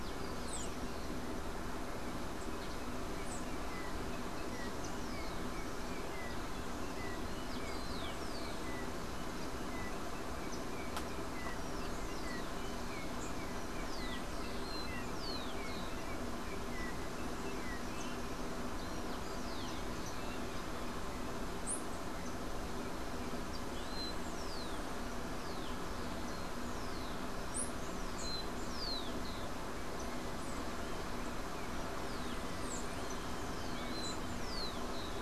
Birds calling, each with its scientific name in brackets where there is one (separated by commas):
Yellow-backed Oriole (Icterus chrysater), Yellow-faced Grassquit (Tiaris olivaceus), Rufous-collared Sparrow (Zonotrichia capensis)